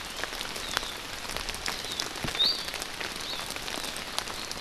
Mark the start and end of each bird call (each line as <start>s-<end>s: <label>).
2.3s-2.6s: Iiwi (Drepanis coccinea)